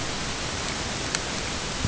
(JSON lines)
{"label": "ambient", "recorder": "HydroMoth"}